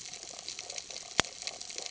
{"label": "ambient", "recorder": "HydroMoth"}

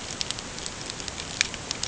{"label": "ambient", "recorder": "HydroMoth"}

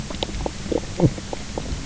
{"label": "biophony, knock croak", "recorder": "SoundTrap 300"}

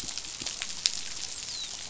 {"label": "biophony, dolphin", "recorder": "SoundTrap 500"}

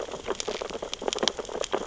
{"label": "biophony, sea urchins (Echinidae)", "recorder": "SoundTrap 600 or HydroMoth"}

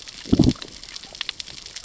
{"label": "biophony, growl", "recorder": "SoundTrap 600 or HydroMoth"}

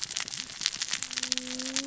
{"label": "biophony, cascading saw", "recorder": "SoundTrap 600 or HydroMoth"}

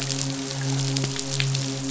{"label": "biophony, midshipman", "recorder": "SoundTrap 500"}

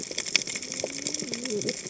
{"label": "biophony, cascading saw", "recorder": "HydroMoth"}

